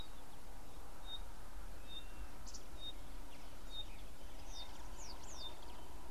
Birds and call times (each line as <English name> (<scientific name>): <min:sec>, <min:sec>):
Pygmy Batis (Batis perkeo): 0:03.8
Red-fronted Prinia (Prinia rufifrons): 0:05.0